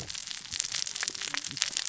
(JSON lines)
{"label": "biophony, cascading saw", "recorder": "SoundTrap 600 or HydroMoth"}